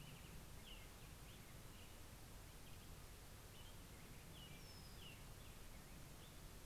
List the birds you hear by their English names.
American Robin, Brown-headed Cowbird